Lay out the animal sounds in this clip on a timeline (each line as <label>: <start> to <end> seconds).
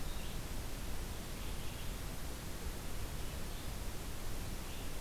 Red-eyed Vireo (Vireo olivaceus): 0.0 to 2.0 seconds
Red-eyed Vireo (Vireo olivaceus): 2.8 to 5.0 seconds